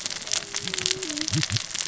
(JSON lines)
{"label": "biophony, cascading saw", "recorder": "SoundTrap 600 or HydroMoth"}